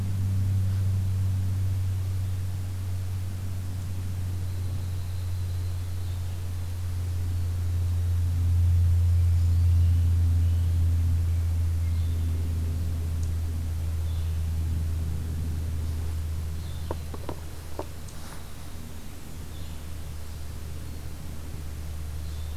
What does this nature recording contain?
Yellow-rumped Warbler, Brown Creeper, Blue-headed Vireo